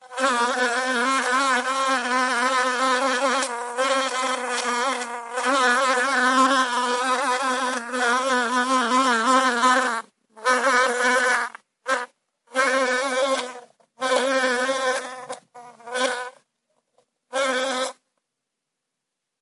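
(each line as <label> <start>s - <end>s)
A fly is buzzing loudly and continuously. 0.0s - 16.4s
A fly buzzes loudly. 17.3s - 18.0s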